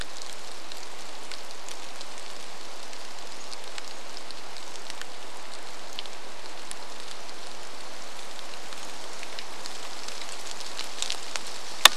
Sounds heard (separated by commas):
rain